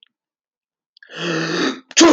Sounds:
Sneeze